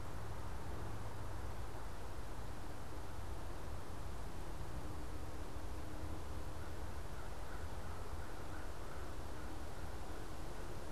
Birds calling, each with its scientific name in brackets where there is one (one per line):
American Crow (Corvus brachyrhynchos)